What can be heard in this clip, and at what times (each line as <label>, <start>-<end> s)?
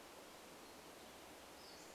Pacific-slope Flycatcher call, 0-2 s